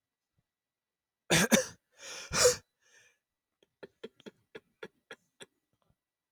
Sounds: Throat clearing